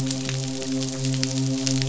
{"label": "biophony, midshipman", "recorder": "SoundTrap 500"}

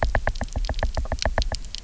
{"label": "biophony, knock", "recorder": "SoundTrap 300"}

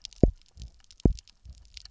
{"label": "biophony, double pulse", "recorder": "SoundTrap 300"}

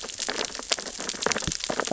{"label": "biophony, sea urchins (Echinidae)", "recorder": "SoundTrap 600 or HydroMoth"}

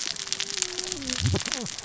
{"label": "biophony, cascading saw", "recorder": "SoundTrap 600 or HydroMoth"}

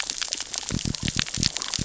{"label": "biophony", "recorder": "SoundTrap 600 or HydroMoth"}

